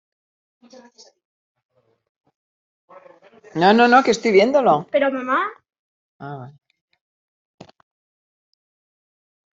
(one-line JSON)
{"expert_labels": [{"quality": "no cough present", "cough_type": "unknown", "dyspnea": false, "wheezing": false, "stridor": false, "choking": false, "congestion": false, "nothing": true, "diagnosis": "healthy cough", "severity": "pseudocough/healthy cough"}], "age": 50, "gender": "female", "respiratory_condition": false, "fever_muscle_pain": false, "status": "symptomatic"}